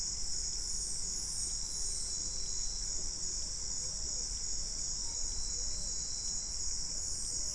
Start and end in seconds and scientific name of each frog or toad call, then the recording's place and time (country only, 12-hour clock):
none
Brazil, 6:00pm